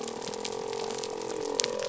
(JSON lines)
{"label": "biophony", "recorder": "SoundTrap 300"}